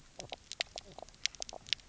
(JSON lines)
{"label": "biophony, knock croak", "recorder": "SoundTrap 300"}